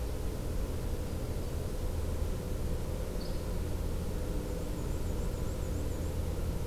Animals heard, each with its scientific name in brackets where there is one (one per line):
Yellow-rumped Warbler (Setophaga coronata)
Black-and-white Warbler (Mniotilta varia)
Yellow-bellied Flycatcher (Empidonax flaviventris)